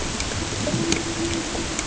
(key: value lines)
label: ambient
recorder: HydroMoth